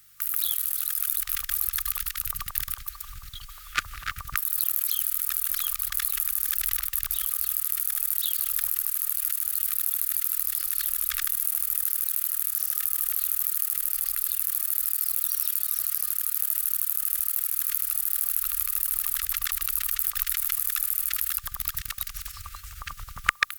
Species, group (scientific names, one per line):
Conocephalus fuscus
Orthoptera